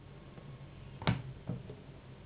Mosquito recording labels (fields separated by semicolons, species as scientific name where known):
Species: Anopheles gambiae s.s.; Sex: female; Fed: unfed; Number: one; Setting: insect culture